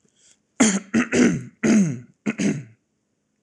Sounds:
Throat clearing